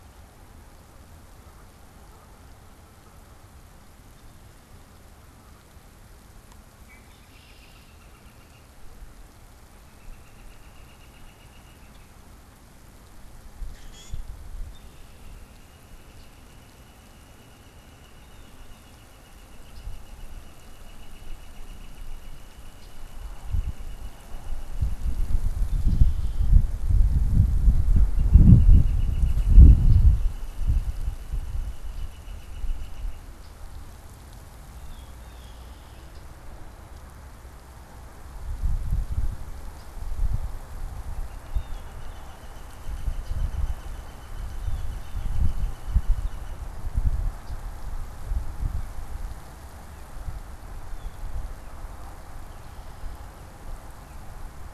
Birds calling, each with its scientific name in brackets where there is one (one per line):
Blue Jay (Cyanocitta cristata)
Northern Flicker (Colaptes auratus)
Common Grackle (Quiscalus quiscula)
Canada Goose (Branta canadensis)
Red-winged Blackbird (Agelaius phoeniceus)